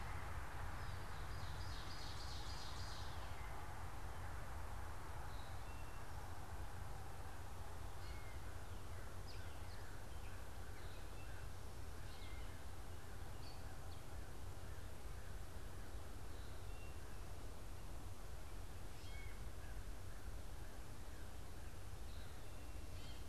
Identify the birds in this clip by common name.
Ovenbird, Eastern Towhee, Gray Catbird